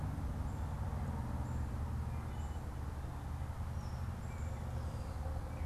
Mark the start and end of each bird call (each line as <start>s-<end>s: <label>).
1.8s-5.0s: Wood Thrush (Hylocichla mustelina)